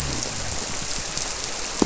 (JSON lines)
{"label": "biophony", "recorder": "SoundTrap 300"}